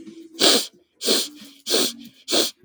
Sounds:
Sniff